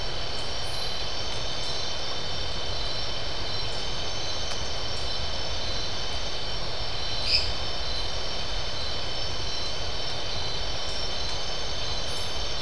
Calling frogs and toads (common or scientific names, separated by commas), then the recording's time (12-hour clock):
lesser tree frog
11:15pm